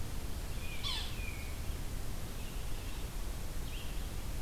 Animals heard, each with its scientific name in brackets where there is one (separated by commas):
Red-eyed Vireo (Vireo olivaceus), Tufted Titmouse (Baeolophus bicolor), Yellow-bellied Sapsucker (Sphyrapicus varius)